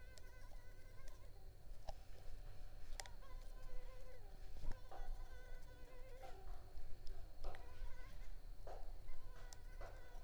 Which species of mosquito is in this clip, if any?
Culex pipiens complex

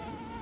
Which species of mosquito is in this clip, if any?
Aedes aegypti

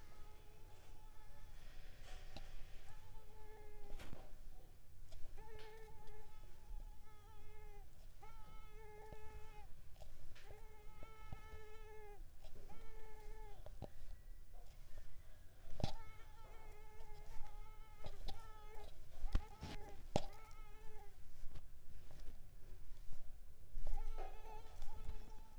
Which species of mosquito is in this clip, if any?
Mansonia africanus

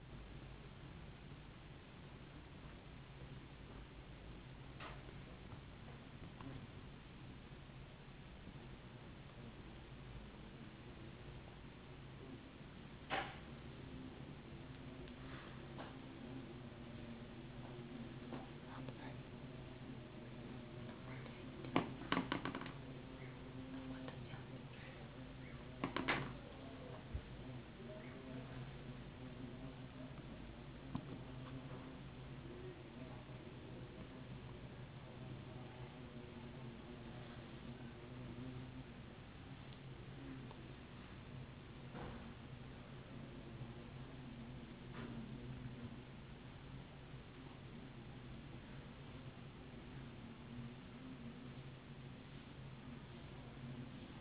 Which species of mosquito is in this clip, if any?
no mosquito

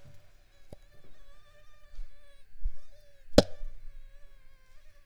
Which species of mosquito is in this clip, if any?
Culex pipiens complex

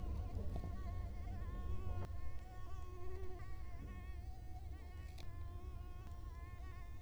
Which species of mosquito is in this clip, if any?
Culex quinquefasciatus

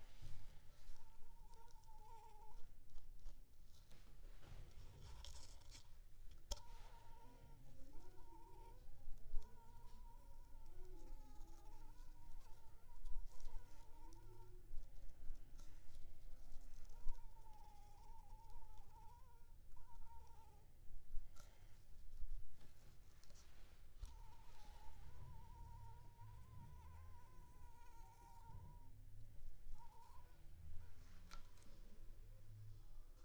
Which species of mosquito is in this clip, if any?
Anopheles funestus s.s.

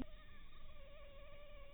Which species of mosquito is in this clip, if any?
mosquito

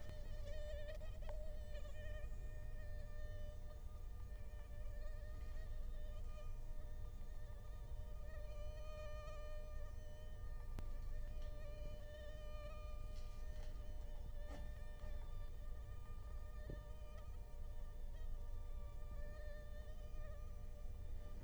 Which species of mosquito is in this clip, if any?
Culex quinquefasciatus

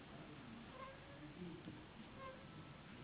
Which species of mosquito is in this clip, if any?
Anopheles gambiae s.s.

